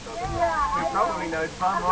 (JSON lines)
{"label": "ambient", "recorder": "HydroMoth"}